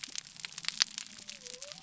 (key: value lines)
label: biophony
recorder: SoundTrap 300